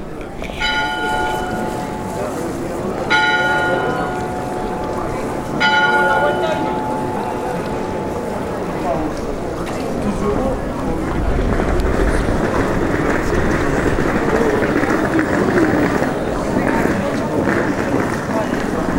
Where are the people?
church